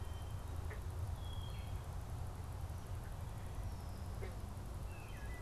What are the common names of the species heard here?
Wood Thrush